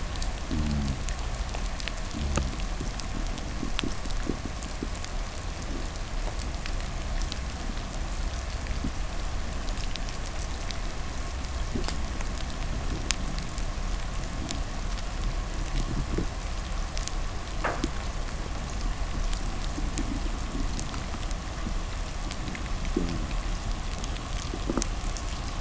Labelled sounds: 0.3	1.2	fish, groan, 0 to 0.58 kHz
2.0	3.0	fish, 0 to 0.53 kHz
22.7	23.4	fish, 0 to 0.64 kHz

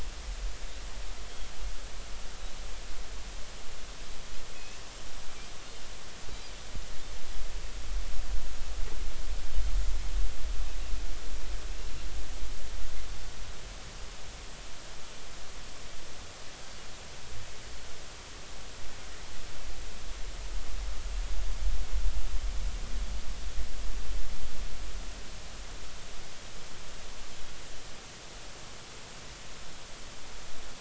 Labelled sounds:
4.5	4.8	Pacific white-sided dolphin, 2.5 to 2.8 kHz

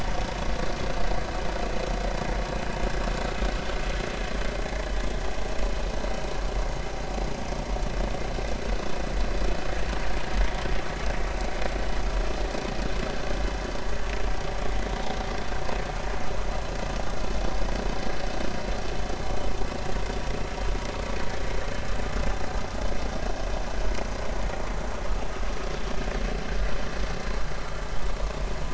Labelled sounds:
10.0	10.3	vessel noise, 4.2 to 4.4 kHz

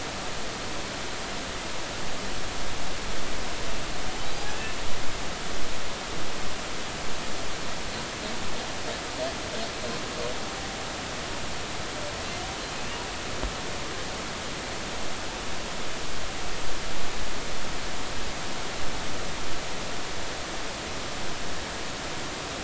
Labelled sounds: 5.4	5.8	humpback whale, 1.6 to 1.8 kHz

